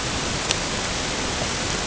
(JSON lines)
{"label": "ambient", "recorder": "HydroMoth"}